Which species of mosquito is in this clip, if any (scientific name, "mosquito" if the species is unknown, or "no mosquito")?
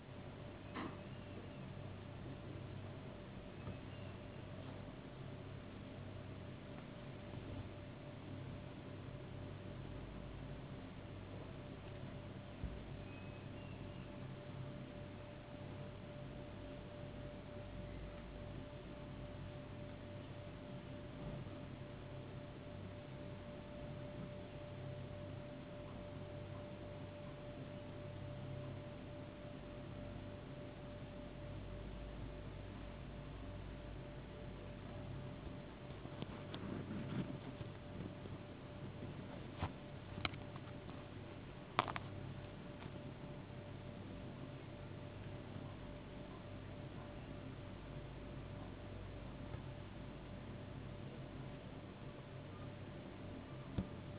no mosquito